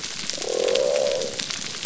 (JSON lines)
{"label": "biophony", "recorder": "SoundTrap 300"}